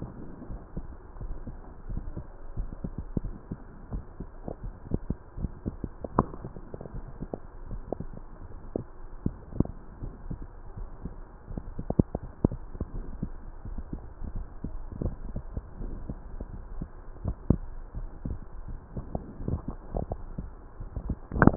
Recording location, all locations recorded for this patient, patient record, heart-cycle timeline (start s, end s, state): aortic valve (AV)
aortic valve (AV)+pulmonary valve (PV)
#Age: nan
#Sex: Female
#Height: nan
#Weight: nan
#Pregnancy status: True
#Murmur: Absent
#Murmur locations: nan
#Most audible location: nan
#Systolic murmur timing: nan
#Systolic murmur shape: nan
#Systolic murmur grading: nan
#Systolic murmur pitch: nan
#Systolic murmur quality: nan
#Diastolic murmur timing: nan
#Diastolic murmur shape: nan
#Diastolic murmur grading: nan
#Diastolic murmur pitch: nan
#Diastolic murmur quality: nan
#Outcome: Normal
#Campaign: 2015 screening campaign
0.00	1.62	unannotated
1.62	1.88	diastole
1.88	2.04	S1
2.04	2.18	systole
2.18	2.26	S2
2.26	2.58	diastole
2.58	2.70	S1
2.70	2.84	systole
2.84	2.94	S2
2.94	3.24	diastole
3.24	3.34	S1
3.34	3.47	systole
3.47	3.58	S2
3.58	3.88	diastole
3.88	4.04	S1
4.04	4.17	systole
4.17	4.30	S2
4.30	4.57	diastole
4.57	4.74	S1
4.74	4.89	systole
4.89	5.02	S2
5.02	5.38	diastole
5.38	5.52	S1
5.52	5.65	systole
5.65	5.76	S2
5.76	6.14	diastole
6.14	6.28	S1
6.28	6.44	systole
6.44	6.60	S2
6.60	6.93	diastole
6.93	7.04	S1
7.04	7.18	systole
7.18	7.30	S2
7.30	7.70	diastole
7.70	7.82	S1
7.82	8.00	systole
8.00	8.10	S2
8.10	9.22	diastole
9.22	9.36	S1
9.36	9.52	systole
9.52	9.67	S2
9.67	10.00	diastole
10.00	10.14	S1
10.14	10.28	systole
10.28	10.40	S2
10.40	10.78	diastole
10.78	10.90	S1
10.90	11.06	systole
11.06	11.14	S2
11.14	11.50	diastole
11.50	11.64	S1
11.64	11.77	systole
11.77	11.89	S2
11.89	12.46	diastole
12.46	12.58	S1
12.58	12.76	systole
12.76	12.88	S2
12.88	21.57	unannotated